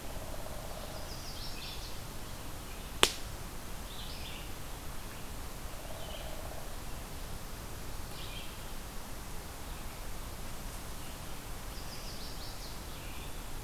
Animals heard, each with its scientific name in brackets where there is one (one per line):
Chestnut-sided Warbler (Setophaga pensylvanica)
unknown woodpecker
Red-eyed Vireo (Vireo olivaceus)